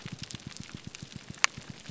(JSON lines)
{"label": "biophony, grouper groan", "recorder": "SoundTrap 300"}